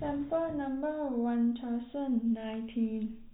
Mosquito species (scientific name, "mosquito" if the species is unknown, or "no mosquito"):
no mosquito